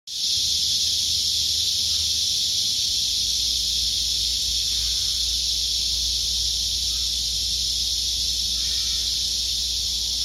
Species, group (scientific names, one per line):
Cryptotympana atrata
Cicadidae